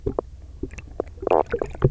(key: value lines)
label: biophony, knock croak
recorder: SoundTrap 300